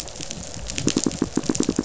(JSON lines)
{"label": "biophony, pulse", "recorder": "SoundTrap 500"}